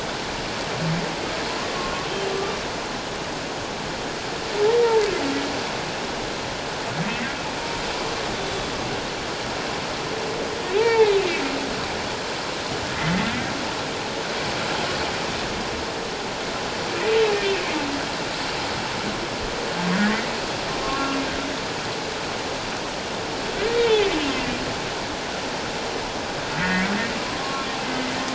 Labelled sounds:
1.7	2.6	humpback whale, 1.0 to 1.2 kHz
8.5	8.7	humpback whale, 7.2 to 7.4 kHz
10.8	11.2	humpback whale, 0.78 to 2.8 kHz
20.8	21.2	humpback whale, 1.0 to 1.2 kHz
23.8	24.6	humpback whale, 1.9 to 2.8 kHz
26.6	26.9	humpback whale, 1.6 to 2.3 kHz
27.4	27.7	humpback whale, 0.97 to 1.1 kHz

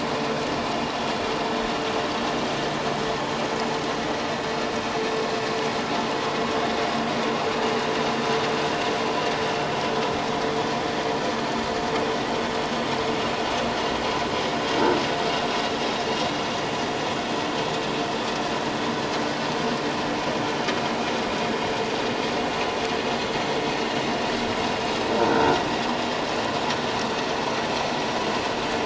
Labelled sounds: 25.3	25.6	croaking sound likely from a nearby submerged object, 1.3 to 1.6 kHz

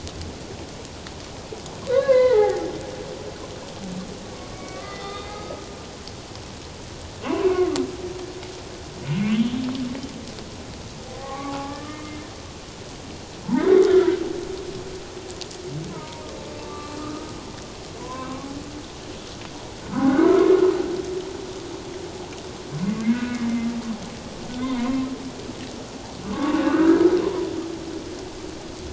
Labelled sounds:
1.9	2.7	humpback whale, 0.78 to 2.8 kHz
4.5	5.6	humpback whale, 1.1 to 3.8 kHz
7.2	7.7	humpback whale, 0.94 to 2.9 kHz
9.3	9.6	humpback whale, 2.9 to 3.4 kHz
11.2	12.3	humpback whale, 0.78 to 2.2 kHz
13.5	14.1	humpback whale, 1.2 to 1.5 kHz
15.9	17.3	humpback whale, 0.91 to 1.3 kHz
18.0	18.5	humpback whale, 0.94 to 1.2 kHz
19.9	20.5	humpback whale, 1.2 to 1.7 kHz
23.0	23.5	humpback whale, 1.4 to 2.7 kHz
26.3	27.5	humpback whale, 0.91 to 1.7 kHz

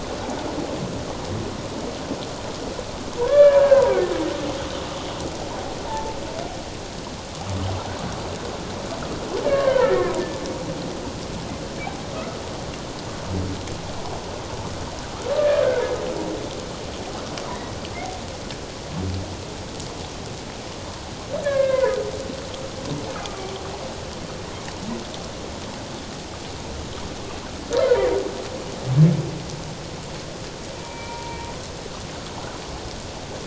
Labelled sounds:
3.2	3.8	humpback whale, 0.91 to 2.4 kHz
5.9	6.2	humpback whale, 0.81 to 0.97 kHz
9.4	10.1	humpback whale, 1.2 to 1.9 kHz
12.1	12.4	humpback whale, 1.2 to 1.5 kHz
21.4	22.0	humpback whale, 0.91 to 2.4 kHz
23.2	23.5	humpback whale, 1.1 to 1.2 kHz
27.8	28.1	humpback whale, 0.91 to 1.1 kHz
30.8	31.4	humpback whale, 0.91 to 2.4 kHz

